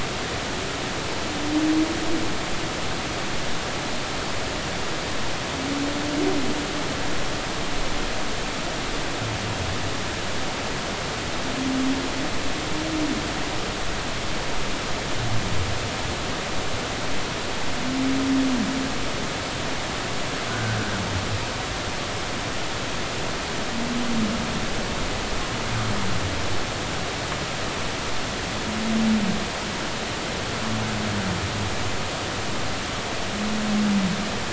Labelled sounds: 20.5	20.8	humpback whale, 1.4 to 1.6 kHz

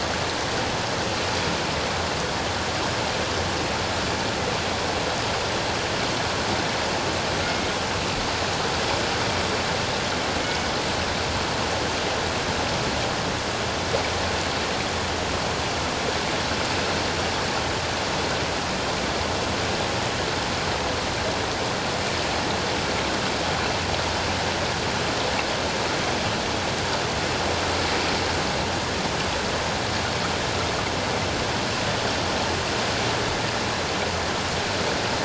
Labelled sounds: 7.4	7.7	killer whale, northern resident, G clan, 2.1 to 2.2 kHz
10.4	10.7	killer whale, northern resident, G clan, 2.16 to 2.25 kHz

